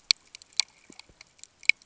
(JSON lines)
{"label": "ambient", "recorder": "HydroMoth"}